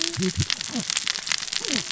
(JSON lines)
{"label": "biophony, cascading saw", "recorder": "SoundTrap 600 or HydroMoth"}